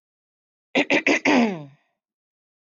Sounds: Throat clearing